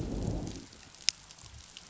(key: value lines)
label: biophony, growl
recorder: SoundTrap 500